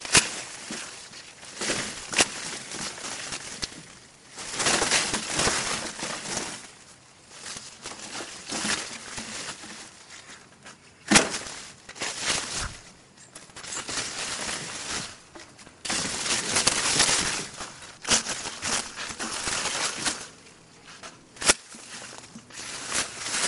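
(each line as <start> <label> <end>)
0.0 A short cutting sound. 0.4
1.5 Footsteps walking through grass. 2.5
4.3 Footsteps walking through grass. 6.7
7.4 Footsteps walking through grass. 9.8
11.0 A short cutting sound. 11.4
15.8 Footsteps walking through grass. 20.4
21.3 A short cutting sound. 21.7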